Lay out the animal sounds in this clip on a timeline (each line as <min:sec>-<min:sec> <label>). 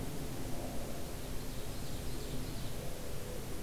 0:00.8-0:02.8 Ovenbird (Seiurus aurocapilla)
0:01.3-0:02.4 Blackburnian Warbler (Setophaga fusca)